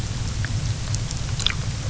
{"label": "anthrophony, boat engine", "recorder": "SoundTrap 300"}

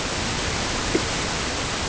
{"label": "ambient", "recorder": "HydroMoth"}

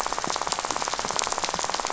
{"label": "biophony, rattle", "recorder": "SoundTrap 500"}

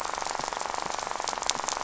{"label": "biophony, rattle", "recorder": "SoundTrap 500"}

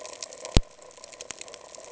{"label": "ambient", "recorder": "HydroMoth"}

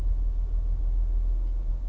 {"label": "anthrophony, boat engine", "recorder": "SoundTrap 300"}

